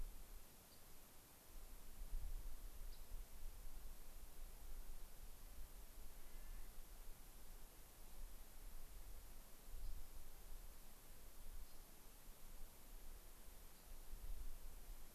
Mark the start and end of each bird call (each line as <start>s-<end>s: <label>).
0.7s-0.9s: Rock Wren (Salpinctes obsoletus)
2.8s-3.1s: Rock Wren (Salpinctes obsoletus)
6.1s-6.9s: Clark's Nutcracker (Nucifraga columbiana)
9.8s-10.2s: Rock Wren (Salpinctes obsoletus)
11.6s-12.0s: Rock Wren (Salpinctes obsoletus)
13.7s-13.9s: Rock Wren (Salpinctes obsoletus)